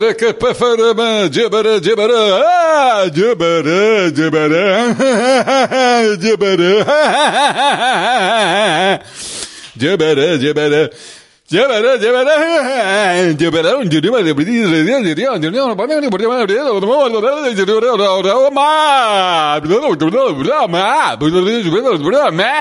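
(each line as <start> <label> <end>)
0.0 A man speaks forcefully in a made-up language. 22.6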